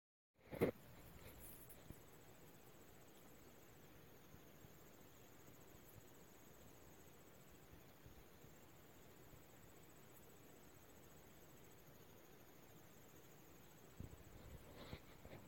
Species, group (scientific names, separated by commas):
Allonemobius allardi, Orthoptera